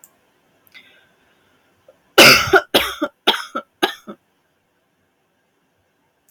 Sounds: Cough